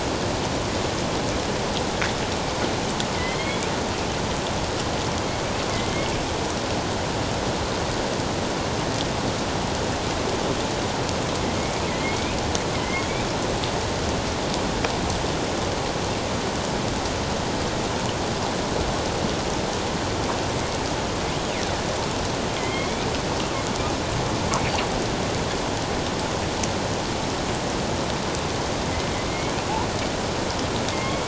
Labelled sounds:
3.1	3.7	killer whale, northern resident, A clan, AA subclan, A04 pod, 1.9 to 2.5 kHz
5.7	6.1	killer whale, northern resident, A clan, AA subclan, A04 pod, 2.0 to 2.2 kHz
11.9	13.2	killer whale, northern resident, A clan, AA subclan, A04 pod, 1.9 to 3.6 kHz
22.6	23.1	killer whale, northern resident, A clan, AA subclan, A04 pod, 2.0 to 3.4 kHz
30.9	31.2	killer whale, northern resident, A clan, AA subclan, A04 pod, 2.1 to 2.2 kHz

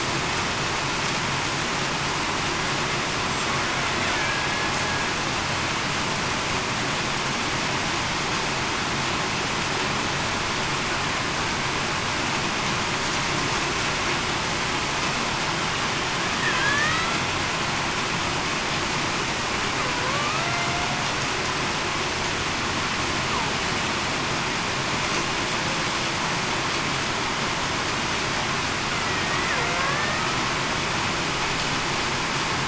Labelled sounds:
4.1	4.5	killer whale, Bigg's (transient), 1.6 to 1.8 kHz
16.6	17.1	killer whale, Bigg's (transient), 1.5 to 2.1 kHz
20.0	20.5	killer whale, Bigg's (transient), 0.98 to 1.4 kHz
29.0	29.5	killer whale, Bigg's (transient), 1.8 to 2.0 kHz
29.8	30.2	killer whale, Bigg's (transient), 1.6 to 1.9 kHz

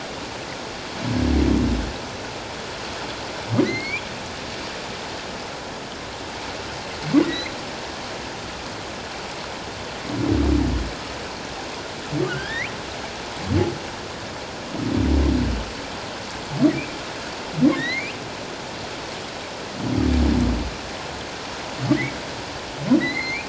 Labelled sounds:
3.6	4.0	humpback whale, 1.8 to 4.8 kHz
7.2	7.5	humpback whale, 1.9 to 4.2 kHz
12.3	12.7	humpback whale, 1.3 to 3.9 kHz
17.8	18.2	humpback whale, 1.7 to 4.3 kHz
23.0	23.4	humpback whale, 1.9 to 4.4 kHz

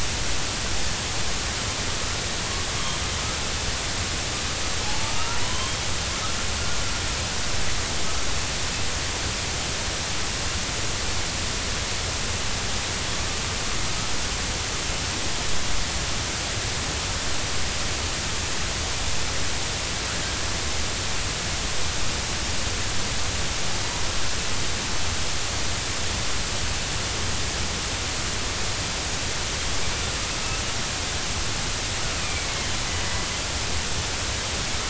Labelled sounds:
4.8	5.8	killer whale, northern resident, 0.80 to 3.3 kHz
30.3	30.6	killer whale, northern resident, 1.2 to 1.3 kHz
32.2	32.7	killer whale, northern resident, 2.0 to 2.6 kHz

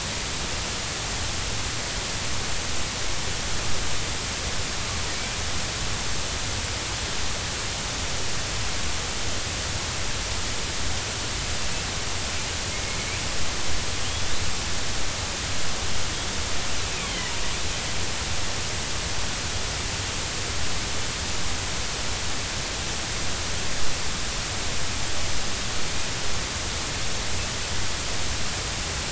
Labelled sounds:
5.2	5.4	killer whale, northern resident, 2.2 to 2.5 kHz
14.0	14.3	killer whale, northern resident, 2.7 to 3.5 kHz
16.9	17.3	killer whale, northern resident, 1.9 to 3.4 kHz

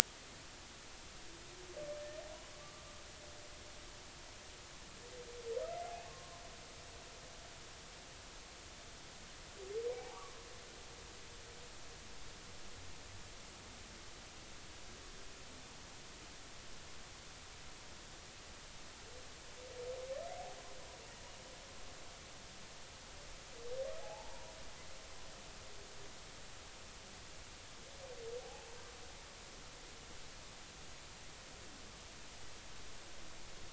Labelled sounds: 2.6	2.8	humpback whale, 1.1 to 1.2 kHz
6.0	6.4	humpback whale, 0.96 to 1.2 kHz
9.9	10.4	humpback whale, 0.80 to 1.3 kHz
24.0	24.5	humpback whale, 0.80 to 1.0 kHz
28.4	28.7	humpback whale, 0.80 to 0.90 kHz

